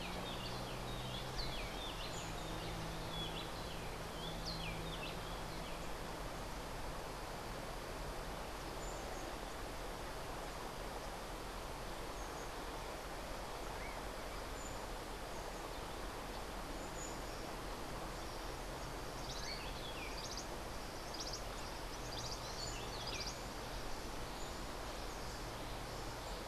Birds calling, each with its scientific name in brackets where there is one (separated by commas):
Rufous-breasted Wren (Pheugopedius rutilus), Cabanis's Wren (Cantorchilus modestus)